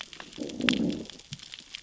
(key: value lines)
label: biophony, growl
recorder: SoundTrap 600 or HydroMoth